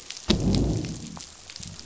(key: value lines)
label: biophony, growl
recorder: SoundTrap 500